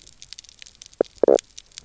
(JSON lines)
{"label": "biophony, knock croak", "recorder": "SoundTrap 300"}